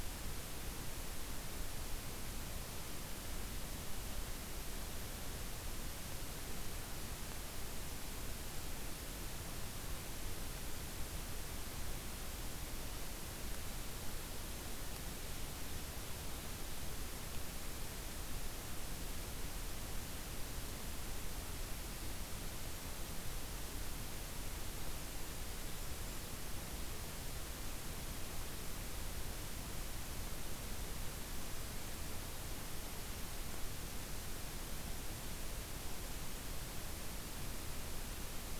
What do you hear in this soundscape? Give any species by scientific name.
forest ambience